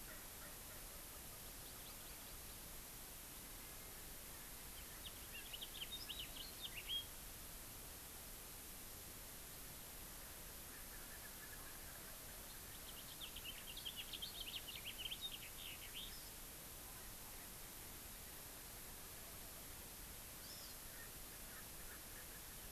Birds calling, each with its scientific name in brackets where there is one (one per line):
House Finch (Haemorhous mexicanus)
Erckel's Francolin (Pternistis erckelii)
Hawaii Amakihi (Chlorodrepanis virens)